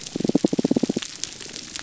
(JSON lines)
{"label": "biophony, damselfish", "recorder": "SoundTrap 300"}